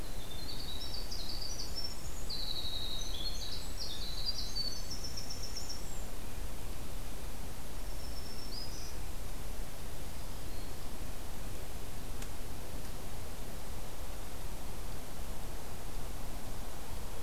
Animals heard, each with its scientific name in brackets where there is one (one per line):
Black-throated Green Warbler (Setophaga virens)
Winter Wren (Troglodytes hiemalis)